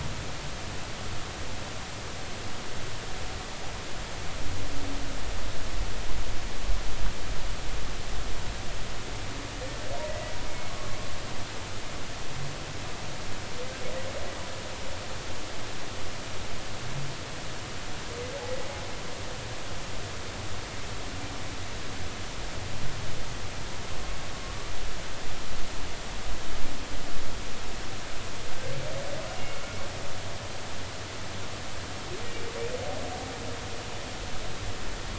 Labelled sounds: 10.1	11.0	humpback whale, 1.1 to 2.2 kHz
24.4	24.7	humpback whale, 1.1 to 1.2 kHz

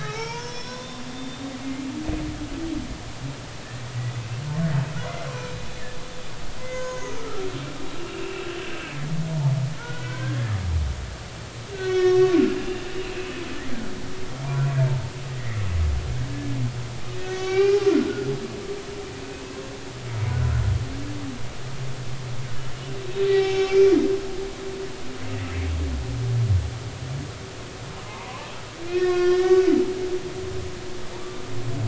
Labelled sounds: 0.0	1.6	humpback whale, 0.83 to 5.9 kHz
4.0	4.2	humpback whale, 1.9 to 2.0 kHz
5.0	5.5	humpback whale, 0.96 to 2.1 kHz
6.6	7.5	humpback whale, 0.96 to 6.7 kHz
8.0	8.5	humpback whale, 2.6 to 2.9 kHz
9.3	10.6	humpback whale, 0.83 to 1.9 kHz
11.7	13.3	humpback whale, 1.4 to 5.6 kHz
14.4	15.7	humpback whale, 0.90 to 2.2 kHz
17.2	17.8	humpback whale, 0.80 to 6.6 kHz
19.2	19.6	humpback whale, 2.5 to 2.7 kHz
23.2	23.8	humpback whale, 0.80 to 5.5 kHz
28.0	28.5	humpback whale, 0.80 to 1.2 kHz
28.9	29.7	humpback whale, 1.0 to 4.8 kHz

